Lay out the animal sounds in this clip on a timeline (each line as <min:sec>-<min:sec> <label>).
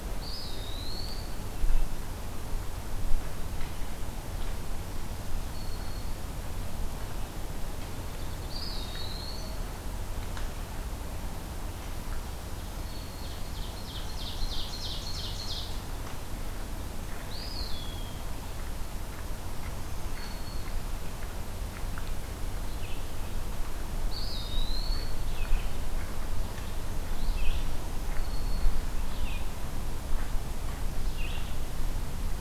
0:00.0-0:01.7 Eastern Wood-Pewee (Contopus virens)
0:05.1-0:06.5 Black-throated Green Warbler (Setophaga virens)
0:08.3-0:09.8 Eastern Wood-Pewee (Contopus virens)
0:12.1-0:13.7 Black-throated Green Warbler (Setophaga virens)
0:12.9-0:15.9 Ovenbird (Seiurus aurocapilla)
0:17.2-0:18.3 Eastern Wood-Pewee (Contopus virens)
0:19.7-0:21.1 Black-throated Green Warbler (Setophaga virens)
0:22.5-0:23.2 Red-eyed Vireo (Vireo olivaceus)
0:24.0-0:25.4 Eastern Wood-Pewee (Contopus virens)
0:25.3-0:32.4 Red-eyed Vireo (Vireo olivaceus)
0:27.6-0:29.0 Black-throated Green Warbler (Setophaga virens)